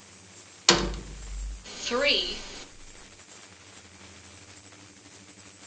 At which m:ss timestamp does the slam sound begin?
0:01